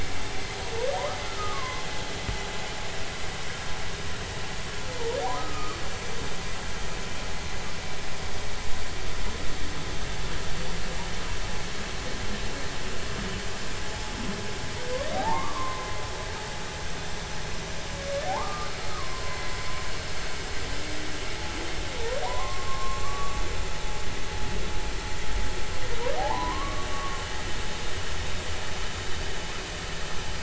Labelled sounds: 1.3	1.8	humpback whale, 0.96 to 1.4 kHz
5.3	5.8	humpback whale, 1.1 to 1.3 kHz
15.1	15.9	humpback whale, 0.80 to 2.1 kHz
18.2	19.5	humpback whale, 0.80 to 2.1 kHz
22.2	23.4	humpback whale, 0.90 to 1.2 kHz
26.2	27.2	humpback whale, 0.80 to 1.2 kHz

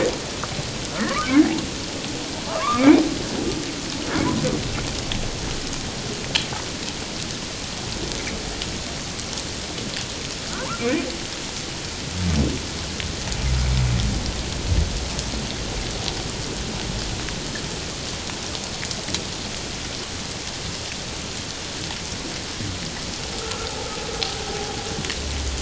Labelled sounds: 1.0	1.6	humpback whale, 0.97 to 2.3 kHz
2.4	3.0	humpback whale, 0.81 to 2.5 kHz
10.6	11.1	humpback whale, 0.84 to 2.5 kHz
23.4	23.7	humpback whale, 1.2 to 1.4 kHz

